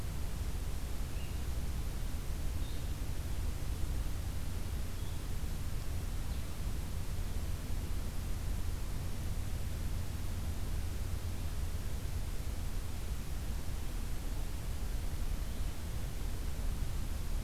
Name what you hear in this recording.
Blue-headed Vireo